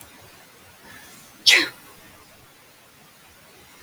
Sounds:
Sneeze